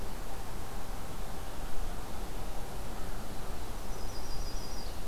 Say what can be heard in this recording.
Yellow-rumped Warbler